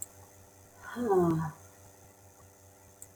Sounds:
Sigh